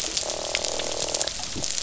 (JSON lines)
{"label": "biophony, croak", "recorder": "SoundTrap 500"}